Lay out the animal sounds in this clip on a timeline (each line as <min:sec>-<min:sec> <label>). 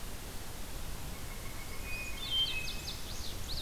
0:01.7-0:02.9 Hermit Thrush (Catharus guttatus)
0:02.0-0:03.6 Indigo Bunting (Passerina cyanea)